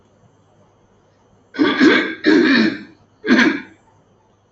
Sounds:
Throat clearing